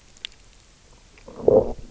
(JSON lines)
{"label": "biophony, low growl", "recorder": "SoundTrap 300"}